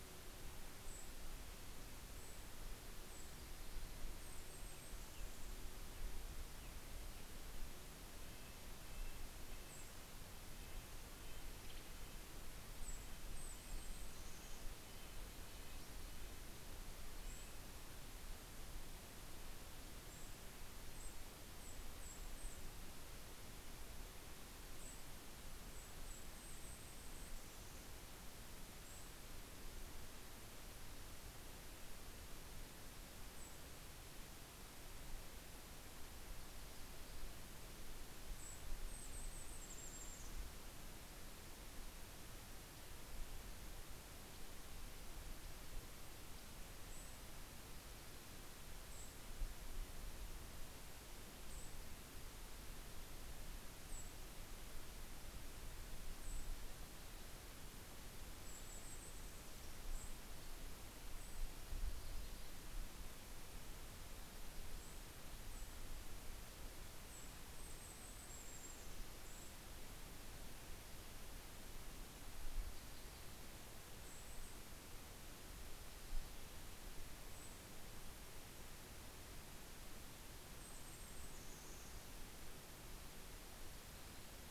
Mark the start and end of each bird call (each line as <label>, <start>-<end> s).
Golden-crowned Kinglet (Regulus satrapa), 0.0-6.2 s
Red-breasted Nuthatch (Sitta canadensis), 7.9-18.1 s
Golden-crowned Kinglet (Regulus satrapa), 9.2-10.4 s
Western Tanager (Piranga ludoviciana), 11.4-12.3 s
Golden-crowned Kinglet (Regulus satrapa), 12.5-15.6 s
Golden-crowned Kinglet (Regulus satrapa), 17.0-18.0 s
Golden-crowned Kinglet (Regulus satrapa), 19.8-23.4 s
Golden-crowned Kinglet (Regulus satrapa), 24.5-28.1 s
Golden-crowned Kinglet (Regulus satrapa), 28.5-29.5 s
Golden-crowned Kinglet (Regulus satrapa), 33.1-33.9 s
Golden-crowned Kinglet (Regulus satrapa), 37.5-41.0 s
Golden-crowned Kinglet (Regulus satrapa), 46.5-52.1 s
Golden-crowned Kinglet (Regulus satrapa), 53.6-54.7 s
Golden-crowned Kinglet (Regulus satrapa), 55.9-62.0 s
Golden-crowned Kinglet (Regulus satrapa), 64.6-70.6 s
Golden-crowned Kinglet (Regulus satrapa), 73.4-74.9 s
Golden-crowned Kinglet (Regulus satrapa), 76.6-77.8 s
Golden-crowned Kinglet (Regulus satrapa), 80.2-83.0 s